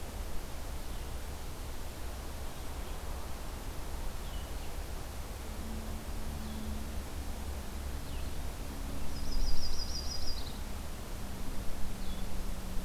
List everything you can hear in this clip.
Blue-headed Vireo, Yellow-rumped Warbler